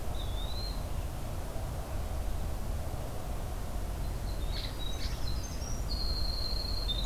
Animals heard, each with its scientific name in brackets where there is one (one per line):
Red Squirrel (Tamiasciurus hudsonicus)
Winter Wren (Troglodytes hiemalis)
Eastern Wood-Pewee (Contopus virens)